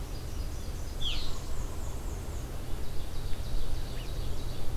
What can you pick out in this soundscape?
Nashville Warbler, Black-and-white Warbler, Red-eyed Vireo, Ovenbird